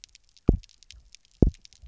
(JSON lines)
{"label": "biophony, double pulse", "recorder": "SoundTrap 300"}